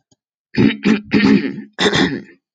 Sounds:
Throat clearing